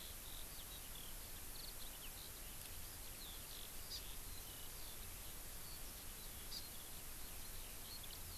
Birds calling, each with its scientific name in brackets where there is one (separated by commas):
Eurasian Skylark (Alauda arvensis), Hawaii Amakihi (Chlorodrepanis virens)